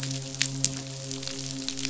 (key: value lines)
label: biophony, midshipman
recorder: SoundTrap 500